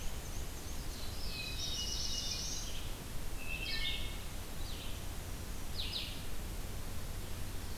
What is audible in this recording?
Black-and-white Warbler, Red-eyed Vireo, Black-throated Blue Warbler, Hermit Thrush, Wood Thrush